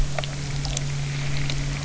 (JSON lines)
{"label": "anthrophony, boat engine", "recorder": "SoundTrap 300"}